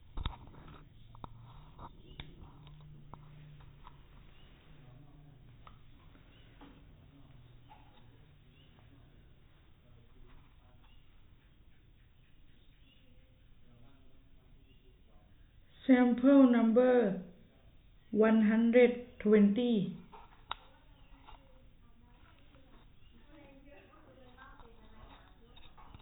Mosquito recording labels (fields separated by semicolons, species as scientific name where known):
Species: no mosquito; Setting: cup